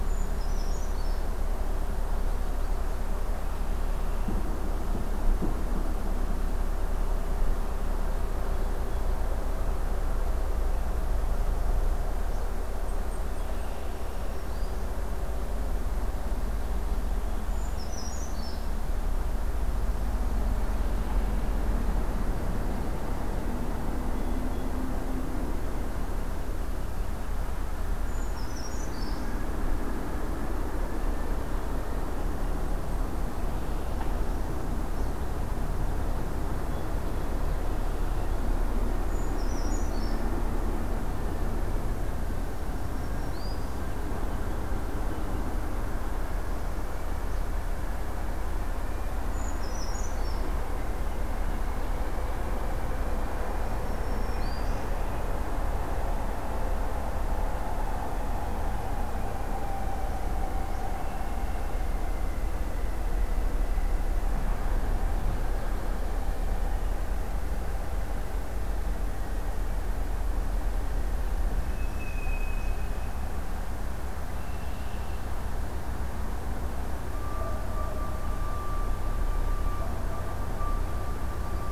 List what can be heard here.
Brown Creeper, Red-winged Blackbird, Blackpoll Warbler, Black-throated Green Warbler, Blue Jay, Northern Parula, unidentified call